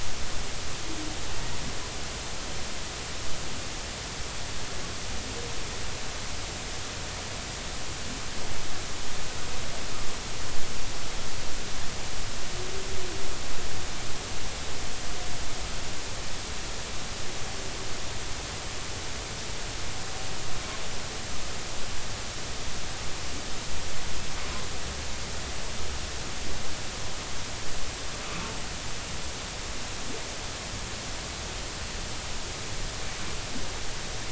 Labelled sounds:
28.2	28.5	humpback whale, 1.1 to 1.4 kHz

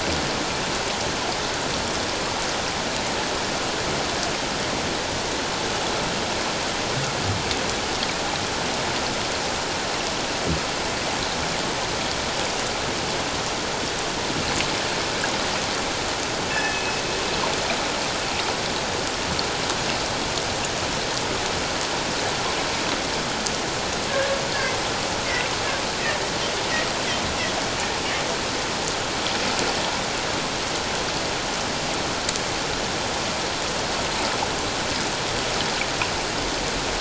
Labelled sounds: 16.5	17.0	killer whale, northern resident, G clan, 1.7 to 2.7 kHz
24.1	24.4	killer whale, northern resident, G clan, 1.5 to 1.8 kHz

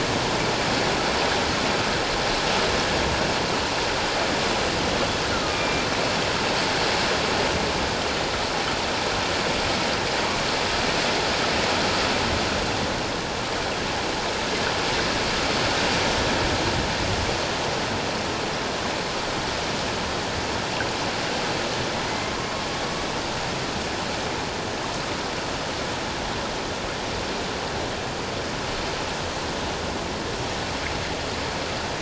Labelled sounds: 5.5	5.9	killer whale, northern resident, A clan, AA subclan, A01 pod, 2.3 to 2.4 kHz
22.0	22.5	killer whale, northern resident, A clan, AA subclan, A01 pod, 0.94 to 2.1 kHz

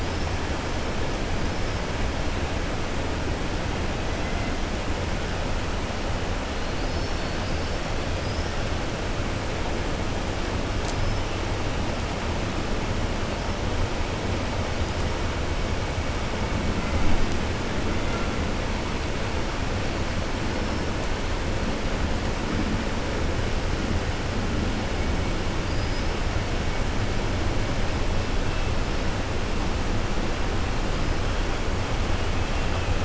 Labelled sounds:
25.6	26.1	killer whale, 4.3 to 5.3 kHz

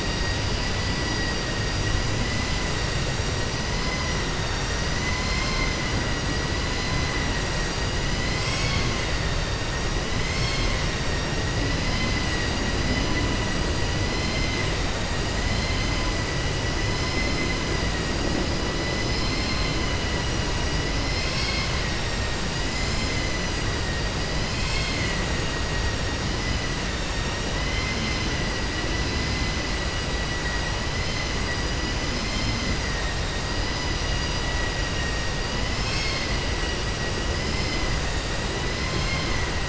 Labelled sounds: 11.8	12.6	vessel noise, 1.9 to 5.2 kHz
27.6	28.3	vessel noise, 2.0 to 6.2 kHz

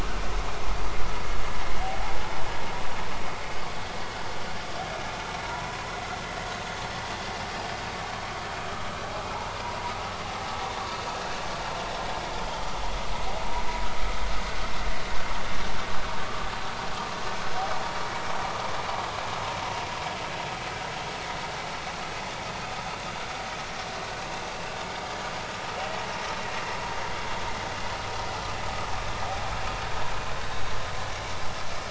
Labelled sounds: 5.4	5.9	humpback whale, 0.90 to 1.1 kHz
12.4	12.7	vessel noise, 3.0 to 3.3 kHz
16.2	16.5	vessel noise, 1.1 to 1.2 kHz

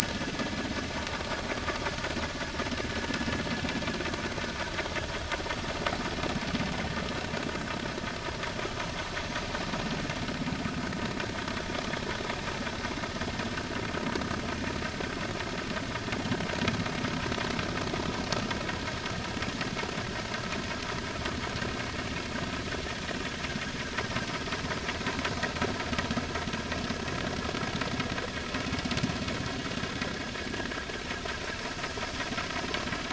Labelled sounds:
0.0	0.3	vessel noise, 1.5 to 1.8 kHz

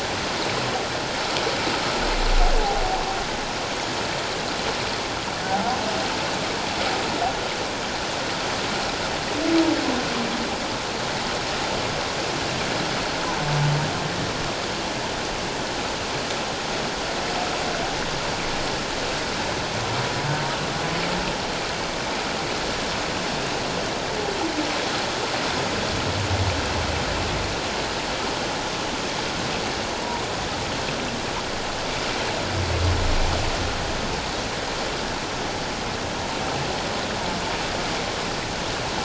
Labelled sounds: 5.5	5.8	humpback whale, 0.78 to 1.1 kHz

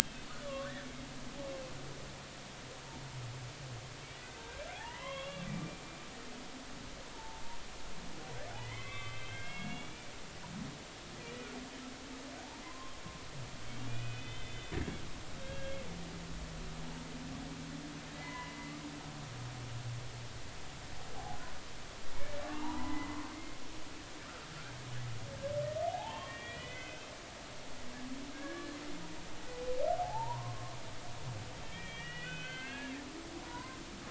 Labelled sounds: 0.4	0.9	humpback whale, 1.0 to 3.6 kHz
4.1	5.6	humpback whale, 0.80 to 3.5 kHz
7.1	7.4	humpback whale, 0.83 to 0.99 kHz
8.6	10.1	humpback whale, 1.0 to 3.5 kHz
12.6	13.0	humpback whale, 0.93 to 1.2 kHz
13.9	14.7	humpback whale, 2.0 to 3.6 kHz
15.4	15.7	humpback whale, 1.6 to 1.7 kHz
18.1	18.8	humpback whale, 0.90 to 2.9 kHz
22.5	23.6	humpback whale, 0.80 to 2.2 kHz
25.9	27.1	humpback whale, 0.80 to 3.4 kHz
28.3	28.8	humpback whale, 1.1 to 1.8 kHz
30.0	33.0	humpback whale, 0.80 to 3.6 kHz
33.4	33.8	humpback whale, 0.90 to 1.1 kHz

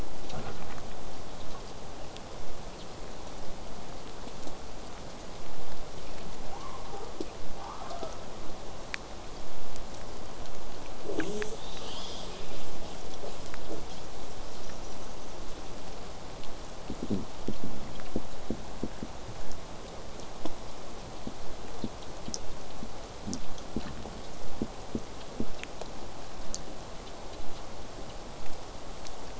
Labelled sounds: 6.4	8.2	killer whale, southern resident, J pod, 0.17 to 1.4 kHz
11.1	15.4	killer whale, southern resident, J pod, call S10, 0 to 8.0 kHz
24.4	29.3	vessel noise, 0 to 8.0 kHz

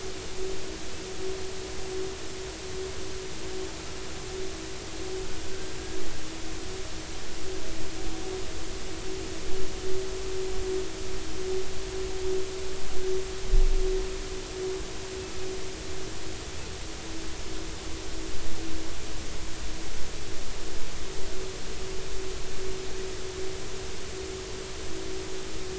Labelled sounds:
6.5	6.8	killer whale, northern resident, 1.4 to 1.6 kHz

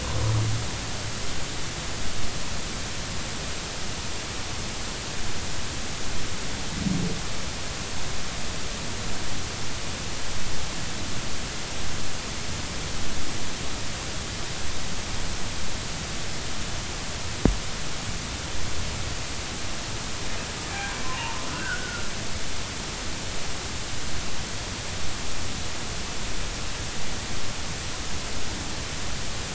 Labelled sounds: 21.0	22.1	humpback whale, 0.86 to 1.7 kHz

